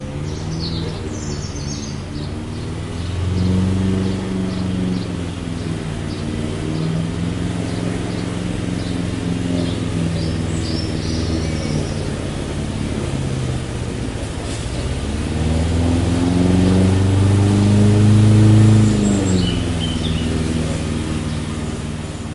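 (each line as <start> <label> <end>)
0.0 A grass cutter's sound rises and falls in volume. 22.3
0.0 Birds chirp occasionally in the distance. 22.3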